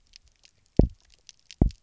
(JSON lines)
{"label": "biophony, double pulse", "recorder": "SoundTrap 300"}